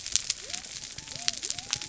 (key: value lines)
label: biophony
recorder: SoundTrap 300